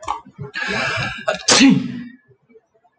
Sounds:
Sneeze